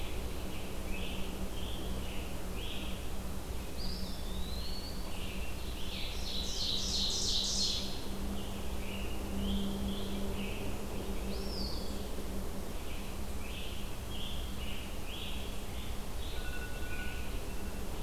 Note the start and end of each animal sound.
[0.00, 3.03] Scarlet Tanager (Piranga olivacea)
[0.00, 6.08] Red-eyed Vireo (Vireo olivaceus)
[3.62, 5.30] Eastern Wood-Pewee (Contopus virens)
[5.74, 8.20] Ovenbird (Seiurus aurocapilla)
[7.53, 17.45] Red-eyed Vireo (Vireo olivaceus)
[8.19, 10.67] Scarlet Tanager (Piranga olivacea)
[11.34, 12.15] Eastern Wood-Pewee (Contopus virens)
[12.65, 16.57] Scarlet Tanager (Piranga olivacea)

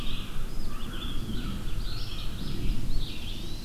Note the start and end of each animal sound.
[0.00, 2.70] American Crow (Corvus brachyrhynchos)
[0.00, 3.65] Red-eyed Vireo (Vireo olivaceus)
[2.16, 3.65] Black-throated Blue Warbler (Setophaga caerulescens)
[3.04, 3.65] Eastern Wood-Pewee (Contopus virens)

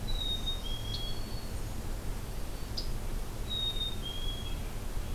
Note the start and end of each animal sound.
[0.00, 1.85] Black-throated Green Warbler (Setophaga virens)
[0.01, 1.25] Black-capped Chickadee (Poecile atricapillus)
[0.85, 1.08] Scarlet Tanager (Piranga olivacea)
[2.22, 2.81] Black-throated Green Warbler (Setophaga virens)
[2.70, 2.91] Scarlet Tanager (Piranga olivacea)
[3.32, 4.73] Black-capped Chickadee (Poecile atricapillus)
[4.33, 5.14] American Robin (Turdus migratorius)

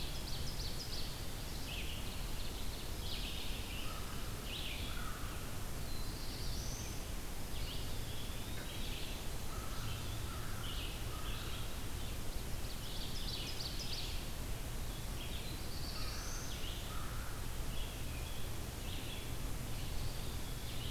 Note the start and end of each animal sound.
[0.00, 3.02] Ovenbird (Seiurus aurocapilla)
[1.54, 20.90] Red-eyed Vireo (Vireo olivaceus)
[2.93, 6.04] American Crow (Corvus brachyrhynchos)
[5.48, 7.05] Black-throated Blue Warbler (Setophaga caerulescens)
[7.40, 9.00] Eastern Wood-Pewee (Contopus virens)
[9.33, 11.69] American Crow (Corvus brachyrhynchos)
[12.12, 14.41] Ovenbird (Seiurus aurocapilla)
[15.10, 16.69] Black-throated Blue Warbler (Setophaga caerulescens)
[15.43, 17.67] American Crow (Corvus brachyrhynchos)
[19.61, 20.90] Eastern Wood-Pewee (Contopus virens)

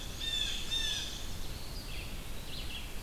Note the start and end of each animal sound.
[0.00, 1.23] Blue Jay (Cyanocitta cristata)
[0.00, 3.02] Red-eyed Vireo (Vireo olivaceus)
[1.48, 2.87] Eastern Wood-Pewee (Contopus virens)

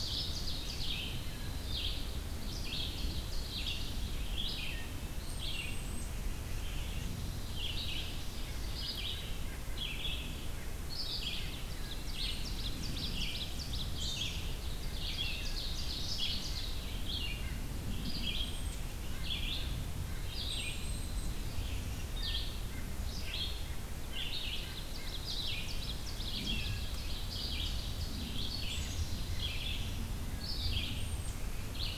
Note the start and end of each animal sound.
[0.00, 0.94] Ovenbird (Seiurus aurocapilla)
[0.00, 18.74] Red-eyed Vireo (Vireo olivaceus)
[2.41, 4.20] Ovenbird (Seiurus aurocapilla)
[4.56, 5.00] Wood Thrush (Hylocichla mustelina)
[5.11, 6.27] Black-capped Chickadee (Poecile atricapillus)
[6.86, 8.88] Ovenbird (Seiurus aurocapilla)
[11.48, 14.00] Ovenbird (Seiurus aurocapilla)
[13.89, 14.40] Black-capped Chickadee (Poecile atricapillus)
[14.44, 16.88] Ovenbird (Seiurus aurocapilla)
[16.43, 19.32] White-breasted Nuthatch (Sitta carolinensis)
[18.36, 21.39] Black-capped Chickadee (Poecile atricapillus)
[19.04, 31.98] Red-eyed Vireo (Vireo olivaceus)
[22.15, 22.68] Wood Thrush (Hylocichla mustelina)
[22.55, 25.17] White-breasted Nuthatch (Sitta carolinensis)
[24.44, 28.54] Ovenbird (Seiurus aurocapilla)
[28.73, 29.83] Black-capped Chickadee (Poecile atricapillus)
[30.86, 31.43] Black-capped Chickadee (Poecile atricapillus)

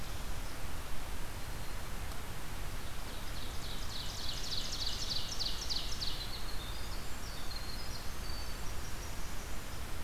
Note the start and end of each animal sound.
[2.89, 6.42] Ovenbird (Seiurus aurocapilla)
[6.05, 10.04] Winter Wren (Troglodytes hiemalis)

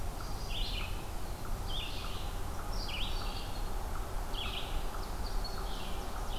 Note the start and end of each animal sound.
[0.00, 6.39] Red-eyed Vireo (Vireo olivaceus)
[4.40, 6.39] Ovenbird (Seiurus aurocapilla)

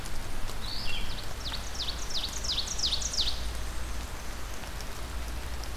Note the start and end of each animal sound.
[0.00, 1.25] Red-eyed Vireo (Vireo olivaceus)
[0.81, 3.60] Ovenbird (Seiurus aurocapilla)
[3.13, 4.65] Black-and-white Warbler (Mniotilta varia)

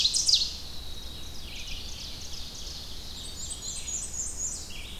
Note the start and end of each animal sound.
[0.00, 0.57] Ovenbird (Seiurus aurocapilla)
[0.00, 4.99] Blue-headed Vireo (Vireo solitarius)
[0.00, 4.99] Red-eyed Vireo (Vireo olivaceus)
[0.13, 4.20] Winter Wren (Troglodytes hiemalis)
[0.89, 3.74] Ovenbird (Seiurus aurocapilla)
[2.91, 4.88] Black-and-white Warbler (Mniotilta varia)
[3.63, 4.99] Tennessee Warbler (Leiothlypis peregrina)

